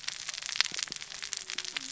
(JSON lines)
{"label": "biophony, cascading saw", "recorder": "SoundTrap 600 or HydroMoth"}